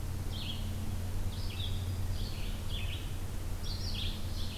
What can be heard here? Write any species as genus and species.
Vireo olivaceus, Setophaga virens